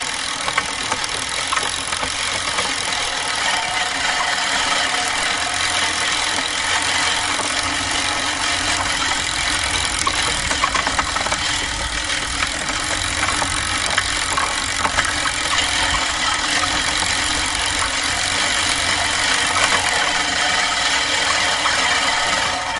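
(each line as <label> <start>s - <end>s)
A lawnmower cutting grass. 0.0s - 22.8s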